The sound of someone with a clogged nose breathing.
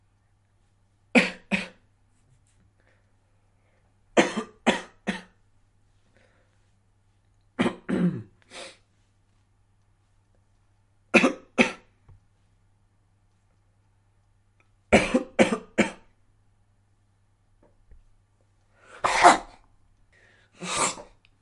8.4s 8.8s, 20.5s 21.1s

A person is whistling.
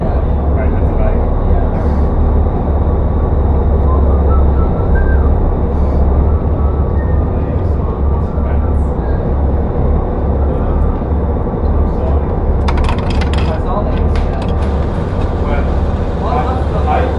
3.9s 5.2s, 6.5s 9.8s

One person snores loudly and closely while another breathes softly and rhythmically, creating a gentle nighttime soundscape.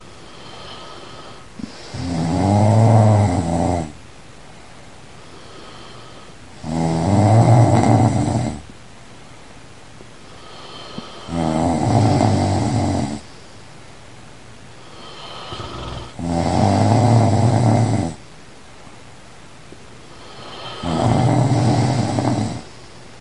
1.3s 4.2s, 6.4s 9.0s, 10.5s 13.6s, 14.9s 18.5s, 20.0s 23.0s

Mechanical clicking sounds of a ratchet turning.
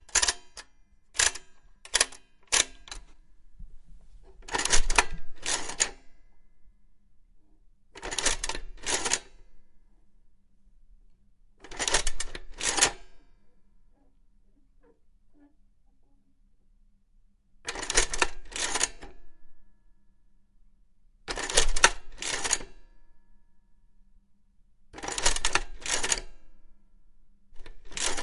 0.0s 3.1s, 4.4s 6.0s, 7.9s 9.3s, 11.6s 13.1s, 17.6s 19.3s, 21.2s 22.8s, 24.9s 26.4s, 27.5s 28.2s

